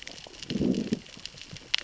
{"label": "biophony, growl", "recorder": "SoundTrap 600 or HydroMoth"}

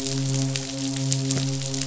{"label": "biophony, midshipman", "recorder": "SoundTrap 500"}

